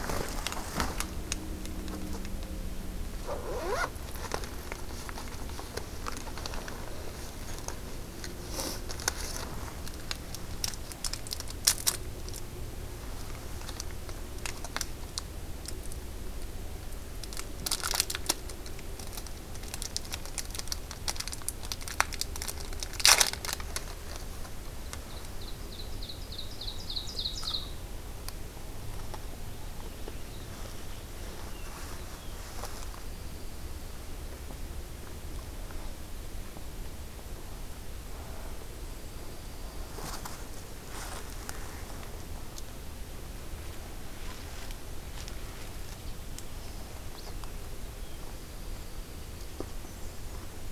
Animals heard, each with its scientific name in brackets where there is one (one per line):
Ovenbird (Seiurus aurocapilla)
Blackburnian Warbler (Setophaga fusca)
Dark-eyed Junco (Junco hyemalis)